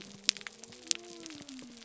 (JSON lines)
{"label": "biophony", "recorder": "SoundTrap 300"}